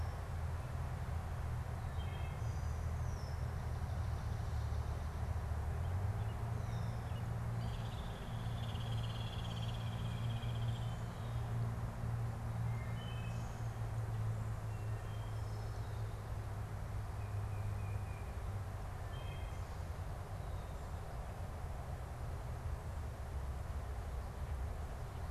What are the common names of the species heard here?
unidentified bird, Wood Thrush, Swamp Sparrow, Tufted Titmouse